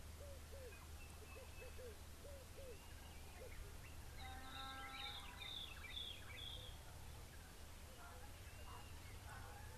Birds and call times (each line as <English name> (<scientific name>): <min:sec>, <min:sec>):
White-browed Robin-Chat (Cossypha heuglini): 0:05.5